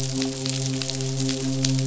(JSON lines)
{"label": "biophony, midshipman", "recorder": "SoundTrap 500"}